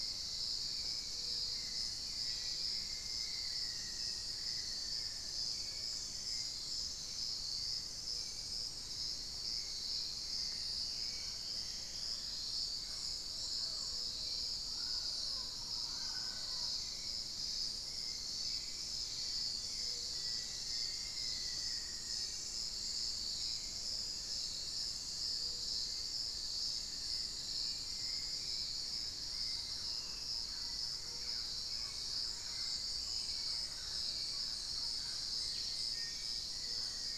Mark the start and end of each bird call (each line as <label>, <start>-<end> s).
Hauxwell's Thrush (Turdus hauxwelli), 0.0-37.2 s
Black-faced Antthrush (Formicarius analis), 1.9-5.6 s
Dusky-throated Antshrike (Thamnomanes ardesiacus), 10.5-13.0 s
Mealy Parrot (Amazona farinosa), 12.6-17.0 s
Long-winged Antwren (Myrmotherula longipennis), 19.2-21.6 s
Black-faced Antthrush (Formicarius analis), 19.7-22.4 s
unidentified bird, 21.8-28.0 s
Fasciated Antshrike (Cymbilaimus lineatus), 24.0-29.1 s
Thrush-like Wren (Campylorhynchus turdinus), 29.2-37.2 s
Black-faced Antthrush (Formicarius analis), 35.6-37.2 s
Long-winged Antwren (Myrmotherula longipennis), 35.9-37.2 s